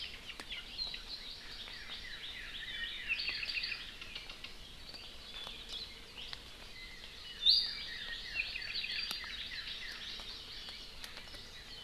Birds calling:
Hawaii Amakihi (Chlorodrepanis virens)
Iiwi (Drepanis coccinea)
Northern Cardinal (Cardinalis cardinalis)
Apapane (Himatione sanguinea)

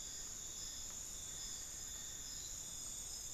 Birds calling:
unidentified bird

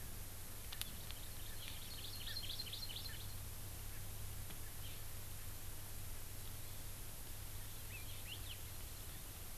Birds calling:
Hawaii Amakihi (Chlorodrepanis virens)
Hawaii Elepaio (Chasiempis sandwichensis)

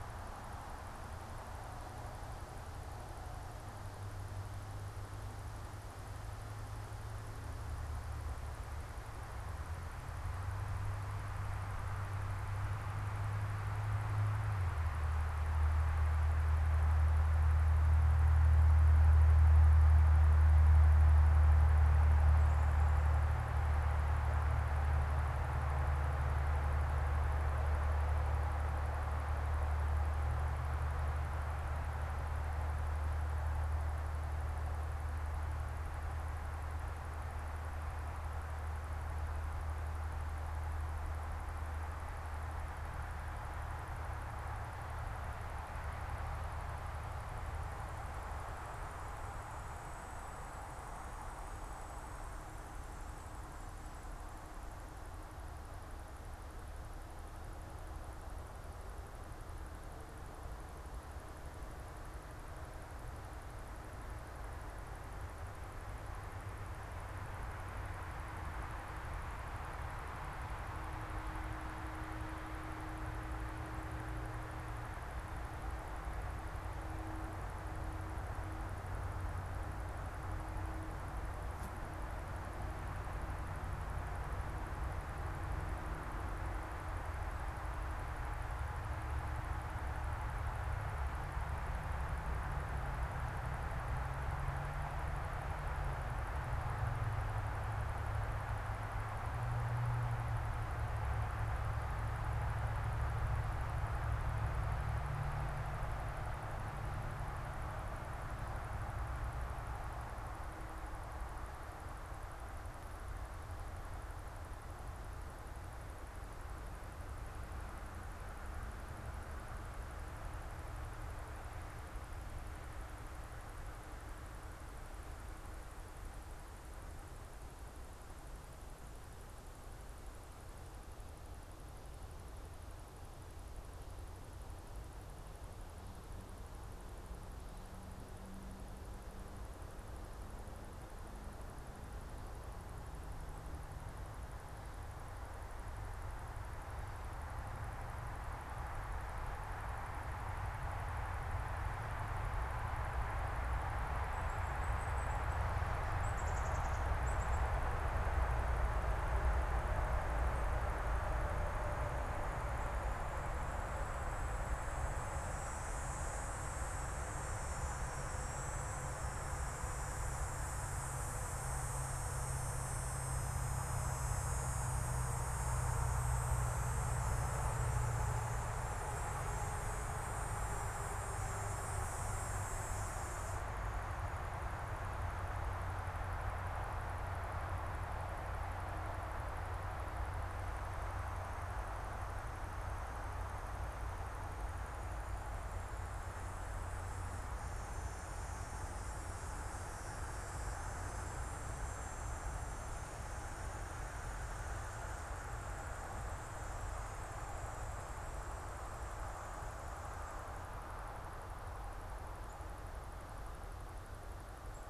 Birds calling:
Black-capped Chickadee (Poecile atricapillus)

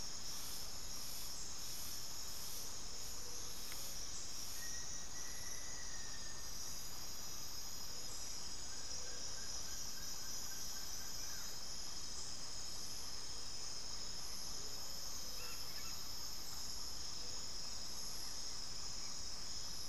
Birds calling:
Amazonian Motmot (Momotus momota)
Plain-winged Antshrike (Thamnophilus schistaceus)
Black-faced Antthrush (Formicarius analis)

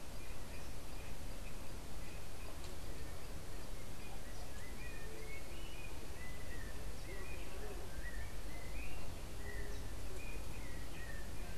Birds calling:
Yellow-backed Oriole (Icterus chrysater)

